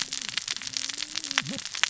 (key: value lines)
label: biophony, cascading saw
recorder: SoundTrap 600 or HydroMoth